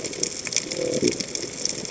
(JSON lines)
{"label": "biophony", "recorder": "HydroMoth"}